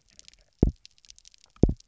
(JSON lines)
{"label": "biophony, double pulse", "recorder": "SoundTrap 300"}